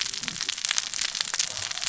{"label": "biophony, cascading saw", "recorder": "SoundTrap 600 or HydroMoth"}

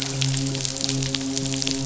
{"label": "biophony, midshipman", "recorder": "SoundTrap 500"}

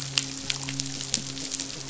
{"label": "biophony, midshipman", "recorder": "SoundTrap 500"}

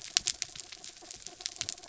{"label": "anthrophony, mechanical", "recorder": "SoundTrap 300"}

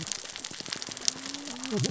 {"label": "biophony, cascading saw", "recorder": "SoundTrap 600 or HydroMoth"}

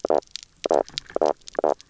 {"label": "biophony, knock croak", "recorder": "SoundTrap 300"}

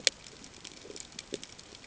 {"label": "ambient", "recorder": "HydroMoth"}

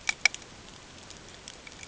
{"label": "ambient", "recorder": "HydroMoth"}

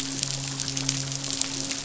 {"label": "biophony, midshipman", "recorder": "SoundTrap 500"}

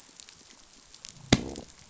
{"label": "biophony, growl", "recorder": "SoundTrap 500"}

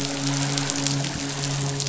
{"label": "biophony, midshipman", "recorder": "SoundTrap 500"}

